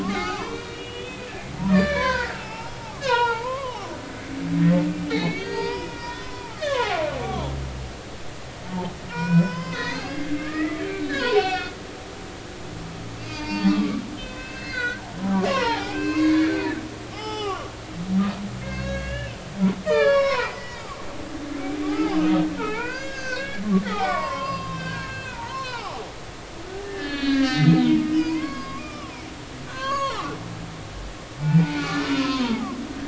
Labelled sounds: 0.0	4.8	humpback whale, 0.80 to 5.6 kHz
5.1	7.0	humpback whale, 0.80 to 6.7 kHz
9.1	11.7	humpback whale, 0.80 to 5.6 kHz
13.2	16.7	humpback whale, 0.80 to 5.5 kHz
17.0	17.7	humpback whale, 0.80 to 5.7 kHz
18.6	22.2	humpback whale, 0.80 to 6.7 kHz
22.6	26.0	humpback whale, 0.80 to 7.1 kHz
26.8	30.3	humpback whale, 0.80 to 5.2 kHz
31.4	32.7	humpback whale, 0.80 to 2.5 kHz

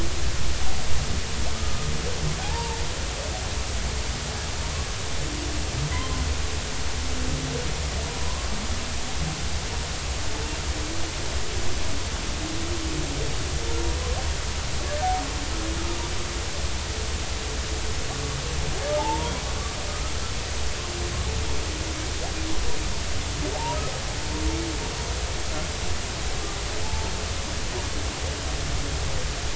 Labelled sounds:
1.6	2.8	humpback whale, 0.80 to 1.3 kHz
5.9	6.2	humpback whale, 0.96 to 1.1 kHz
8.2	8.5	humpback whale, 0.96 to 1.2 kHz
15.8	16.0	humpback whale, 1.2 to 1.4 kHz
19.0	19.3	humpback whale, 0.80 to 1.1 kHz
19.9	20.1	humpback whale, 1.2 to 1.3 kHz
23.5	23.8	humpback whale, 0.80 to 1.0 kHz
26.8	27.1	humpback whale, 0.83 to 0.93 kHz

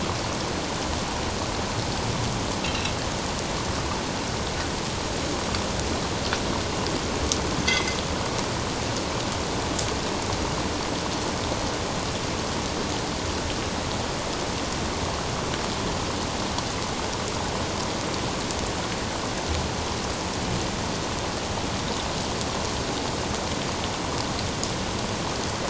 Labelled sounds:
2.6	2.9	metallic clang, 3.8 to 4.1 kHz
7.7	8.0	metallic clang, 2.0 to 6.2 kHz

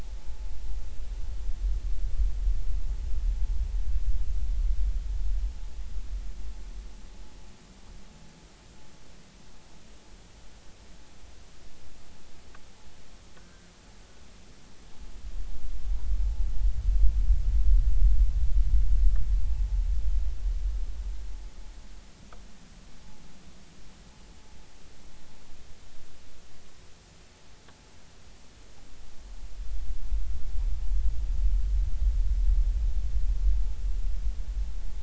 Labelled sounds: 13.4	13.7	vessel noise, 1.4 to 1.6 kHz

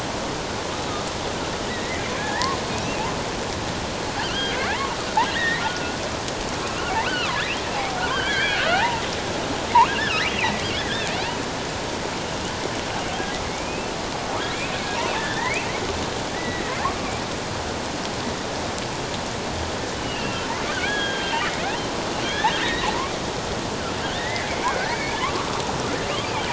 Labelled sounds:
1.7	3.0	killer whale, offshore, 0.78 to 2.8 kHz
4.2	6.0	killer whale, offshore, 0.78 to 3.3 kHz
7.0	9.0	killer whale, offshore, 0.78 to 3.5 kHz
9.9	11.1	killer whale, offshore, 1.2 to 2.0 kHz
13.4	13.9	killer whale, offshore, 2.0 to 2.7 kHz
14.5	14.8	killer whale, offshore, 2.1 to 2.7 kHz
15.1	15.7	killer whale, offshore, 1.5 to 3.6 kHz
16.3	16.6	killer whale, offshore, 1.7 to 2.0 kHz
19.9	22.9	killer whale, offshore, 1.4 to 3.7 kHz
24.1	25.6	killer whale, offshore, 1.0 to 2.5 kHz

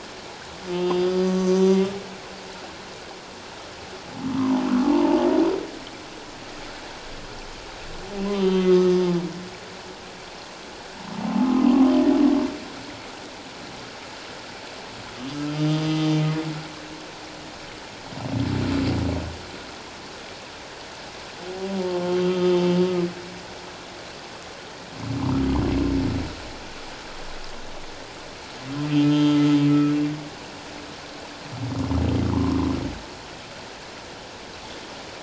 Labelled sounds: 0.7	1.9	humpback whale, 0.94 to 6.3 kHz
4.4	5.2	humpback whale, 0.78 to 1.3 kHz
8.3	9.1	humpback whale, 1.1 to 6.1 kHz
11.5	11.9	humpback whale, 0.97 to 1.2 kHz
15.5	16.3	humpback whale, 3.1 to 4.9 kHz
21.8	22.6	humpback whale, 0.84 to 3.3 kHz
29.0	29.4	humpback whale, 1.3 to 3.6 kHz
32.3	32.7	humpback whale, 0.81 to 1.2 kHz

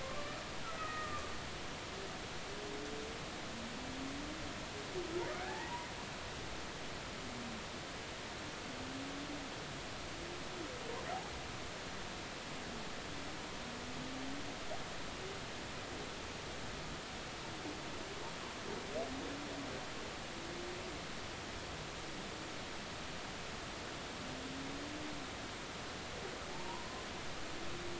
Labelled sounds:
0.0	1.3	humpback whale, 1.0 to 2.6 kHz
5.3	5.7	humpback whale, 1.4 to 2.0 kHz
26.5	26.9	humpback whale, 0.83 to 1.1 kHz

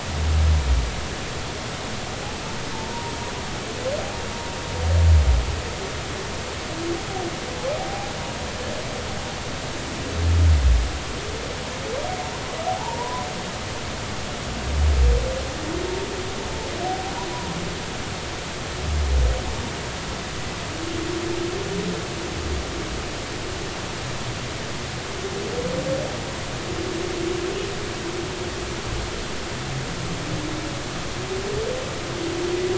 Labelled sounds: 12.7	13.3	humpback whale, 0.80 to 1.1 kHz

